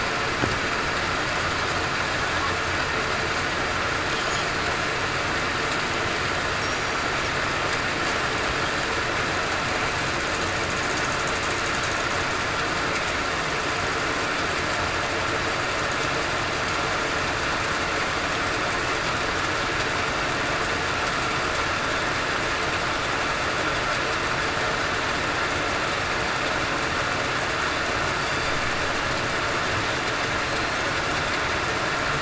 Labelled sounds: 6.6	7.0	killer whale, southern resident, 5.5 to 5.7 kHz
28.2	28.5	killer whale, southern resident, 4.6 to 4.8 kHz

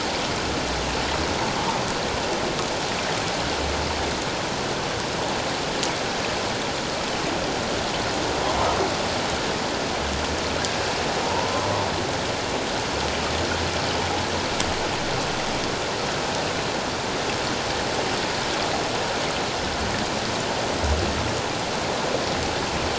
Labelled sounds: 11.2	11.7	humpback whale, 0.84 to 1.2 kHz

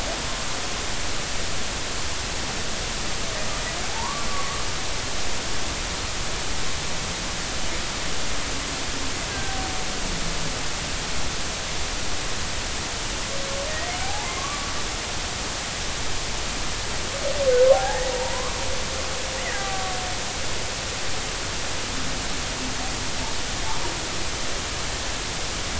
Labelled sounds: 3.9	4.7	humpback whale, 0.80 to 1.2 kHz
9.3	9.5	killer whale, Bigg's (transient), 1.5 to 1.7 kHz
14.0	14.7	humpback whale, 0.80 to 1.2 kHz
17.7	18.6	humpback whale, 0.80 to 2.0 kHz
19.6	19.9	killer whale, Bigg's (transient), 1.1 to 1.2 kHz

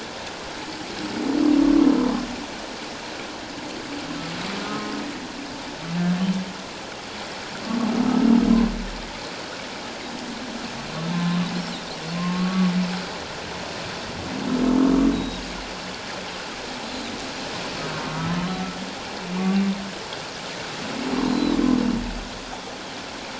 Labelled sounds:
2.0	2.2	humpback whale, 0.97 to 1.2 kHz
4.7	5.0	humpback whale, 1.0 to 1.1 kHz
11.1	12.7	humpback whale, 1.0 to 1.2 kHz
15.1	15.4	Pacific white-sided dolphin, 3.6 to 4.0 kHz
21.3	21.6	Pacific white-sided dolphin, 3.8 to 4.2 kHz

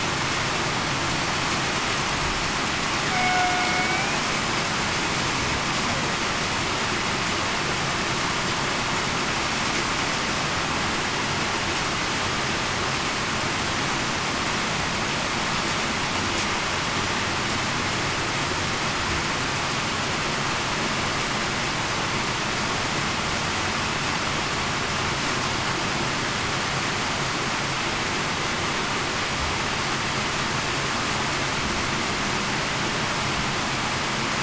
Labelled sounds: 3.1	3.7	killer whale, Bigg's (transient), 0.70 to 0.75 kHz

